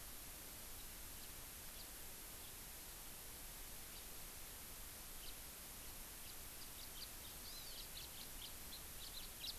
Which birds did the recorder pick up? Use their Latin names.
Haemorhous mexicanus, Chlorodrepanis virens